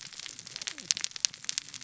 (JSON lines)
{"label": "biophony, cascading saw", "recorder": "SoundTrap 600 or HydroMoth"}